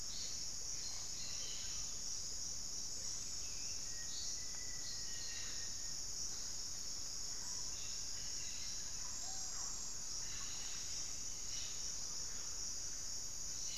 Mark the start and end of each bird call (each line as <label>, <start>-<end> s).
Cobalt-winged Parakeet (Brotogeris cyanoptera), 0.0-13.8 s
Hauxwell's Thrush (Turdus hauxwelli), 0.0-13.8 s
Mealy Parrot (Amazona farinosa), 0.0-13.8 s
unidentified bird, 2.8-3.9 s
Black-faced Antthrush (Formicarius analis), 3.5-5.9 s
Thrush-like Wren (Campylorhynchus turdinus), 7.1-13.0 s
Screaming Piha (Lipaugus vociferans), 9.0-9.8 s
unidentified bird, 10.1-13.8 s